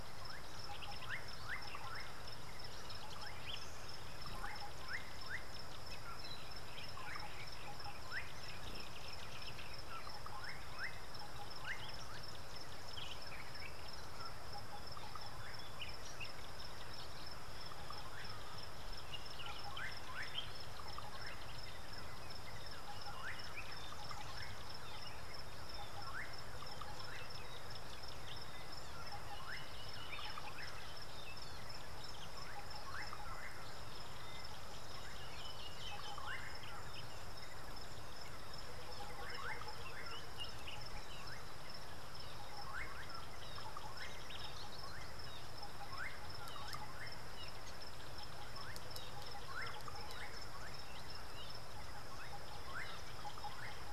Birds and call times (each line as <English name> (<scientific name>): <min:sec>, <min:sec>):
Slate-colored Boubou (Laniarius funebris): 0:01.1, 0:26.1, 0:33.0, 0:39.3, 0:42.8, 0:46.0, 0:49.6
White-browed Coucal (Centropus superciliosus): 0:38.8